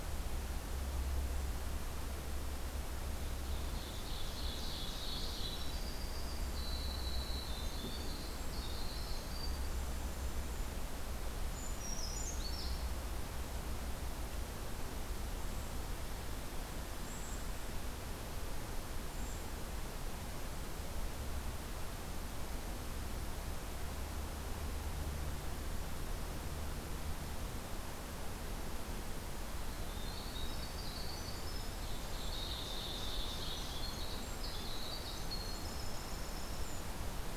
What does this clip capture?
Ovenbird, Winter Wren, Brown Creeper